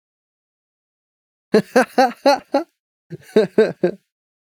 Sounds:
Laughter